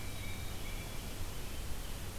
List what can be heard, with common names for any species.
Tufted Titmouse